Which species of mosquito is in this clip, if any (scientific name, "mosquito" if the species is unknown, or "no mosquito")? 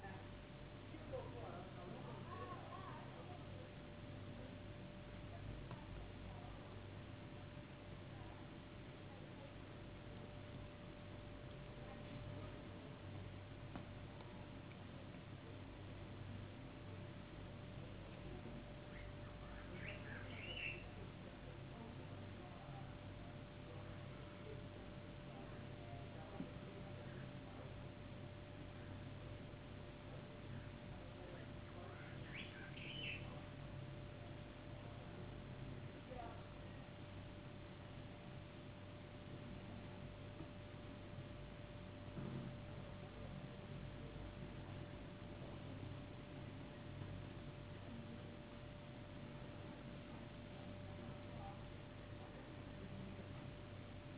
no mosquito